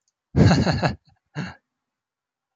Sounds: Laughter